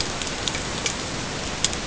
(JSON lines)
{"label": "ambient", "recorder": "HydroMoth"}